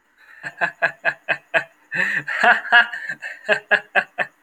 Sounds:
Laughter